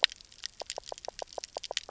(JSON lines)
{"label": "biophony, knock croak", "recorder": "SoundTrap 300"}